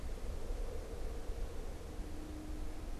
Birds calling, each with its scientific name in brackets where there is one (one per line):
Pileated Woodpecker (Dryocopus pileatus)